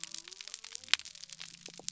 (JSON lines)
{"label": "biophony", "recorder": "SoundTrap 300"}